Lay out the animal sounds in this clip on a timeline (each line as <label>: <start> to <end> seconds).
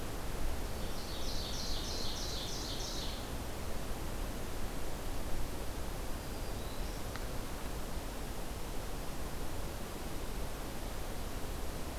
Ovenbird (Seiurus aurocapilla): 0.7 to 3.8 seconds
Black-throated Green Warbler (Setophaga virens): 6.0 to 7.1 seconds